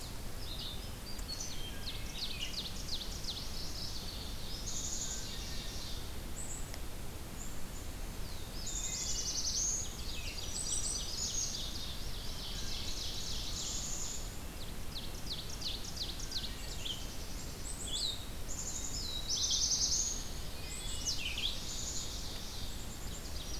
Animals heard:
Black-throated Green Warbler (Setophaga virens), Red-eyed Vireo (Vireo olivaceus), Wood Thrush (Hylocichla mustelina), Black-throated Blue Warbler (Setophaga caerulescens), Ovenbird (Seiurus aurocapilla), Song Sparrow (Melospiza melodia), Mourning Warbler (Geothlypis philadelphia), Black-capped Chickadee (Poecile atricapillus)

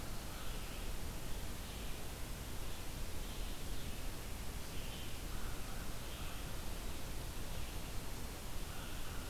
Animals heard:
Red-eyed Vireo (Vireo olivaceus), American Crow (Corvus brachyrhynchos)

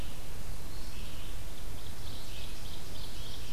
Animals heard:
Ovenbird (Seiurus aurocapilla), Red-eyed Vireo (Vireo olivaceus)

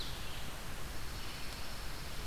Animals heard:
Red-eyed Vireo (Vireo olivaceus), Pine Warbler (Setophaga pinus)

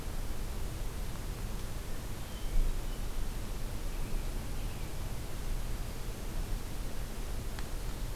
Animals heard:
American Robin (Turdus migratorius), Hermit Thrush (Catharus guttatus)

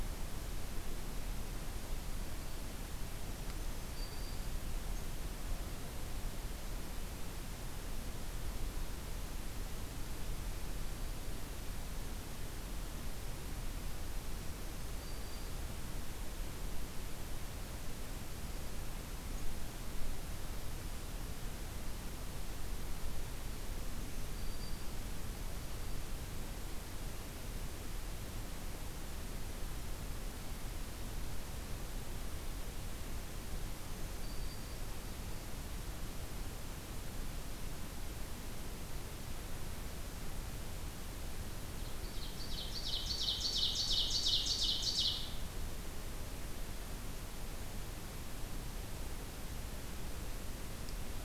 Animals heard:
Ovenbird (Seiurus aurocapilla), Black-throated Green Warbler (Setophaga virens)

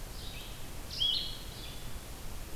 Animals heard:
Blue-headed Vireo (Vireo solitarius), Red-eyed Vireo (Vireo olivaceus)

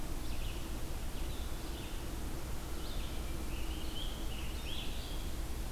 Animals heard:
American Robin (Turdus migratorius), Red-eyed Vireo (Vireo olivaceus)

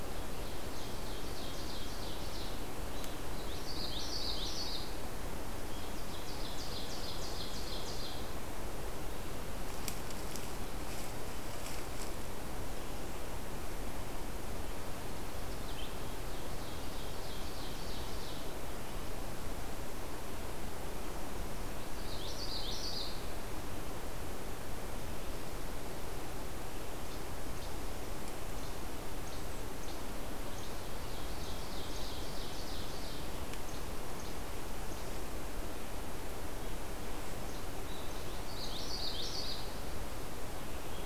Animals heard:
Common Yellowthroat (Geothlypis trichas), Least Flycatcher (Empidonax minimus), Ovenbird (Seiurus aurocapilla)

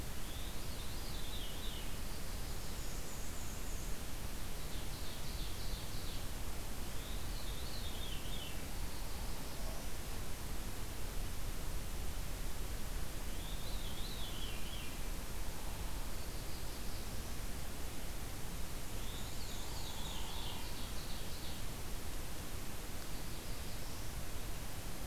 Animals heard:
Veery (Catharus fuscescens), Ovenbird (Seiurus aurocapilla), Downy Woodpecker (Dryobates pubescens), Black-throated Blue Warbler (Setophaga caerulescens), Black-and-white Warbler (Mniotilta varia)

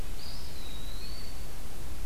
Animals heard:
Eastern Wood-Pewee (Contopus virens)

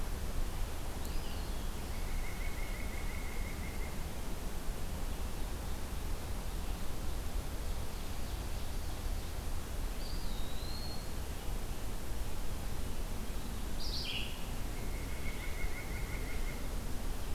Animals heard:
Blue-headed Vireo (Vireo solitarius), White-breasted Nuthatch (Sitta carolinensis), Ovenbird (Seiurus aurocapilla), Eastern Wood-Pewee (Contopus virens)

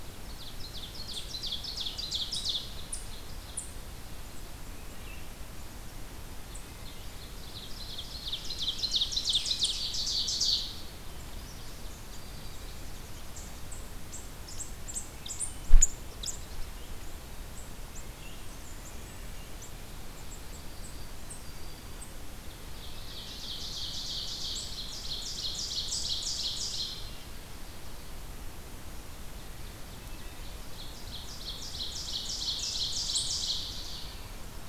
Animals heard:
Black-throated Green Warbler (Setophaga virens), Wood Thrush (Hylocichla mustelina), Hermit Thrush (Catharus guttatus), unknown mammal, Ovenbird (Seiurus aurocapilla)

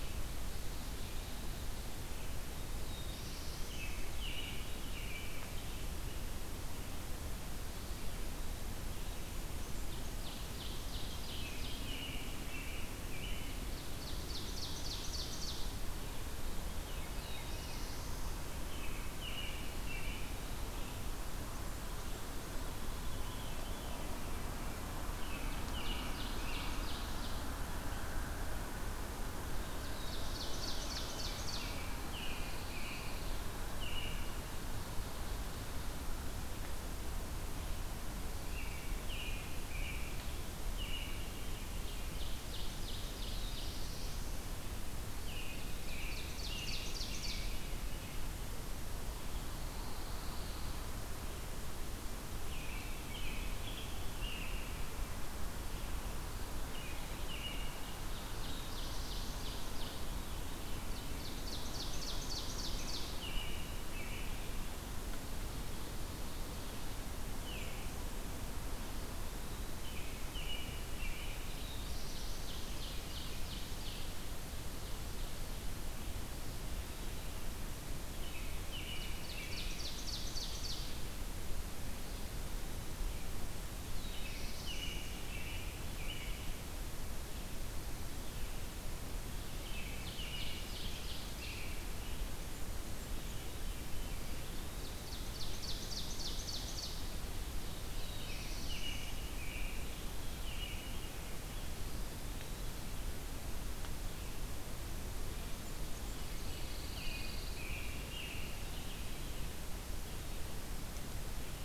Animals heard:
Black-throated Blue Warbler (Setophaga caerulescens), Red-eyed Vireo (Vireo olivaceus), Eastern Wood-Pewee (Contopus virens), American Robin (Turdus migratorius), Veery (Catharus fuscescens), Ovenbird (Seiurus aurocapilla), Blackburnian Warbler (Setophaga fusca), Pine Warbler (Setophaga pinus)

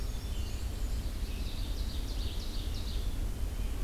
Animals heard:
Black-and-white Warbler (Mniotilta varia), Ovenbird (Seiurus aurocapilla), Black-capped Chickadee (Poecile atricapillus), Red-eyed Vireo (Vireo olivaceus)

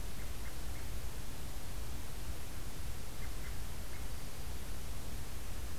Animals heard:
American Robin (Turdus migratorius)

